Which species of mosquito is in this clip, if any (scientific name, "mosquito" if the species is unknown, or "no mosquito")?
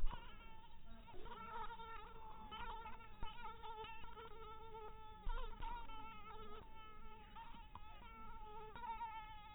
mosquito